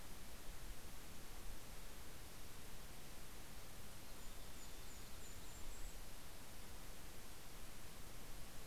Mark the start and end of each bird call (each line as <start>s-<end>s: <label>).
2.9s-7.1s: Golden-crowned Kinglet (Regulus satrapa)
3.1s-5.8s: Mountain Chickadee (Poecile gambeli)